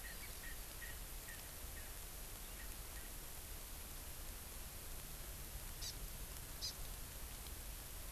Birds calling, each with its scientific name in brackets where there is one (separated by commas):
Hawaii Amakihi (Chlorodrepanis virens), Erckel's Francolin (Pternistis erckelii)